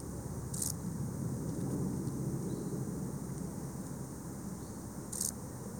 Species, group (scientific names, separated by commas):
Chorthippus brunneus, Orthoptera